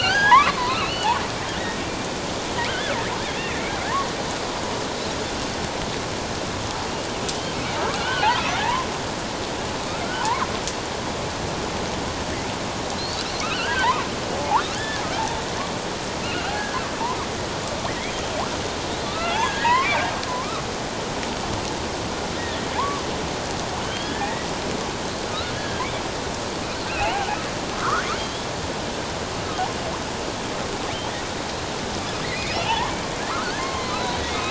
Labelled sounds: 1.4	1.8	killer whale, offshore, 1.7 to 2.0 kHz
2.7	2.9	killer whale, offshore, 1.4 to 1.8 kHz
7.9	8.9	killer whale, offshore, 0.78 to 3.5 kHz
10.2	10.5	killer whale, offshore, 0.81 to 1.3 kHz
13.0	13.9	killer whale, offshore, 1.3 to 4.6 kHz
14.4	15.0	killer whale, offshore, 0.78 to 1.8 kHz
16.2	16.9	killer whale, offshore, 1.2 to 1.7 kHz
18.0	18.3	killer whale, offshore, 3.1 to 3.4 kHz
19.0	20.6	killer whale, offshore, 0.88 to 3.5 kHz
22.4	23.0	killer whale, offshore, 0.78 to 2.0 kHz
23.8	24.5	killer whale, offshore, 1.5 to 3.5 kHz
25.6	25.8	killer whale, offshore, 1.5 to 1.8 kHz
26.9	28.5	killer whale, offshore, 1.0 to 3.5 kHz
32.2	32.9	killer whale, offshore, 0.78 to 3.1 kHz
33.3	34.3	killer whale, offshore, 0.94 to 4.3 kHz

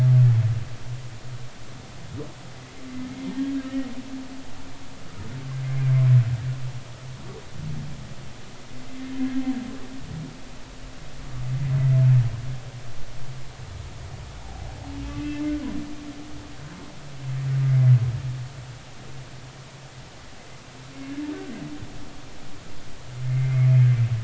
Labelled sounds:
3.3	3.9	humpback whale, 1.8 to 2.0 kHz
8.9	9.1	humpback whale, 2.0 to 2.2 kHz
14.4	14.7	humpback whale, 0.80 to 0.96 kHz
15.0	15.4	humpback whale, 2.5 to 2.7 kHz
21.3	21.6	humpback whale, 1.5 to 1.6 kHz
23.2	23.7	humpback whale, 2.0 to 2.2 kHz

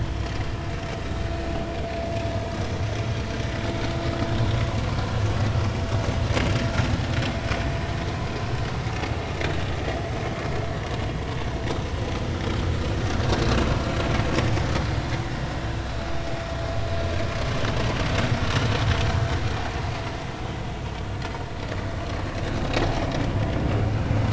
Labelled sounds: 15.3	15.6	vessel noise, 5.1 to 5.4 kHz

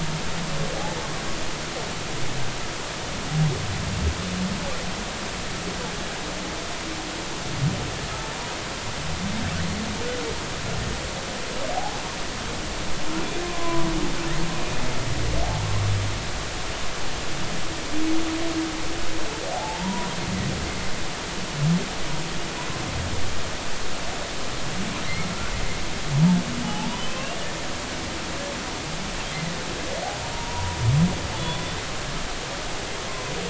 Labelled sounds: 11.7	12.0	humpback whale, 0.80 to 0.90 kHz
13.4	13.9	humpback whale, 0.96 to 1.1 kHz
19.5	20.1	humpback whale, 0.80 to 1.1 kHz
26.6	27.4	humpback whale, 0.80 to 3.2 kHz
30.3	31.8	humpback whale, 0.90 to 3.6 kHz

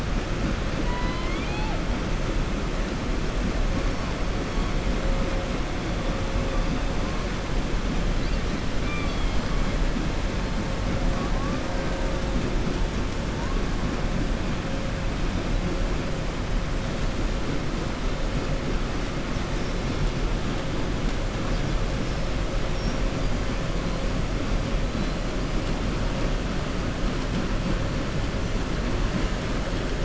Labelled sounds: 0.8	1.8	killer whale, southern resident, 0.63 to 4.7 kHz
8.8	9.5	killer whale, southern resident, 2.3 to 5.3 kHz

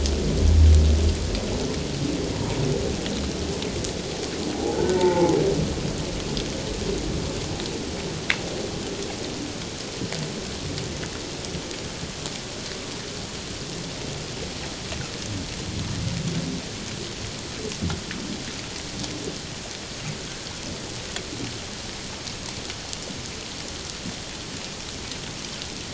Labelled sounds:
2.3	2.6	humpback whale, 0.88 to 1.0 kHz
4.5	5.3	humpback whale, 0.78 to 1.6 kHz

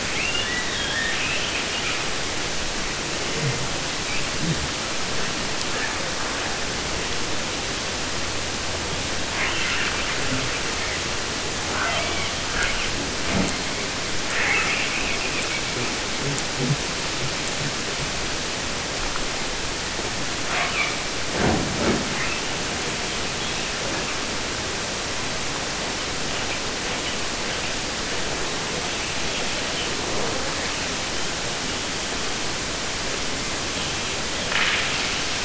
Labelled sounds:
0.0	2.1	killer whale, 0.50 to 4.3 kHz
9.3	11.0	killer whale, southern resident, 0.89 to 3.5 kHz
11.7	12.3	killer whale, southern resident, 0.13 to 3.7 kHz
12.5	13.9	killer whale, 0.06 to 4.4 kHz
14.2	16.1	killer whale, southern resident, 0.10 to 3.8 kHz
20.4	21.0	killer whale, 0.19 to 5.0 kHz
22.0	22.5	killer whale, 1.6 to 3.3 kHz
27.5	32.1	killer whale, 0.31 to 4.1 kHz
33.4	34.5	killer whale, 1.4 to 3.9 kHz

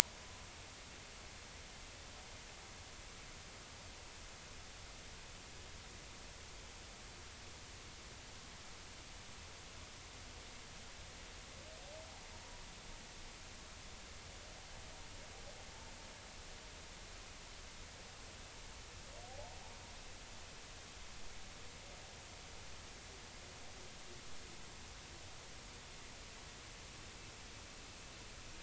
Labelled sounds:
19.3	19.6	humpback whale, 0.80 to 0.96 kHz

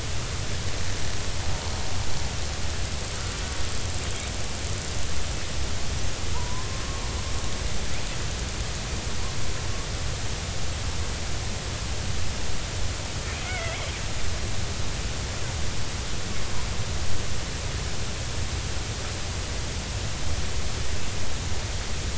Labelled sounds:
6.3	6.8	killer whale, Bigg's (transient), 0.86 to 1.1 kHz
13.4	13.9	killer whale, Bigg's (transient), 1.3 to 2.4 kHz

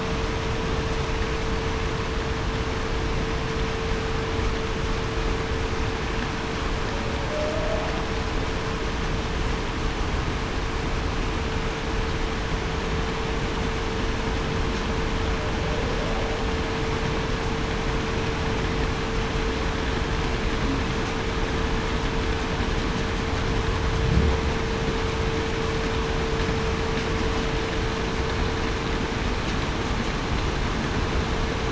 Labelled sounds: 7.2	7.8	humpback whale, 0.56 to 0.70 kHz

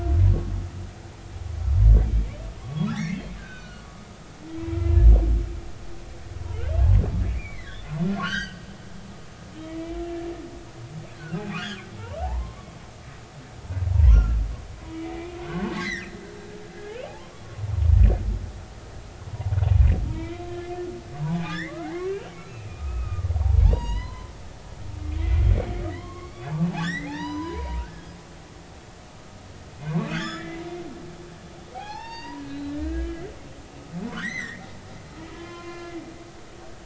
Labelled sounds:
2.6	3.8	humpback whale, 0.99 to 4.6 kHz
4.4	4.9	humpback whale, 1.4 to 2.0 kHz
7.3	8.6	humpback whale, 1.3 to 6.7 kHz
9.7	10.3	humpback whale, 1.7 to 2.1 kHz
11.2	12.8	humpback whale, 0.80 to 2.6 kHz
14.0	16.2	humpback whale, 1.0 to 6.3 kHz
16.8	17.4	humpback whale, 0.99 to 1.8 kHz
19.3	20.4	humpback whale, 0.80 to 2.5 kHz
21.3	24.3	humpback whale, 0.80 to 6.8 kHz
25.9	28.1	humpback whale, 0.80 to 6.0 kHz
30.1	30.6	humpback whale, 1.1 to 7.0 kHz
31.7	33.2	humpback whale, 0.80 to 5.7 kHz
34.1	36.0	humpback whale, 0.93 to 6.3 kHz

